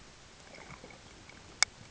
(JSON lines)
{"label": "ambient", "recorder": "HydroMoth"}